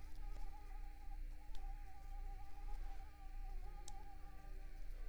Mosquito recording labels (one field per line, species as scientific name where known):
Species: Mansonia africanus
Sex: female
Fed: unfed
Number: one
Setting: cup